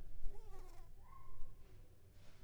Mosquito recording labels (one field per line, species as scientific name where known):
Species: Anopheles arabiensis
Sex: female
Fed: unfed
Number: one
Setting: cup